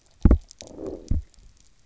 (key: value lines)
label: biophony, low growl
recorder: SoundTrap 300